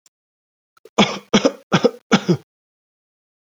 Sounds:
Cough